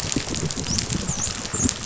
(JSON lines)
{"label": "biophony, dolphin", "recorder": "SoundTrap 500"}